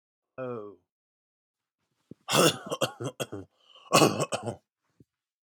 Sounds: Cough